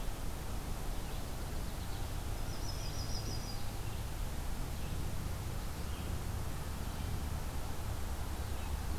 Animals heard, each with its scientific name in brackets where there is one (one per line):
Yellow-rumped Warbler (Setophaga coronata)
Red-eyed Vireo (Vireo olivaceus)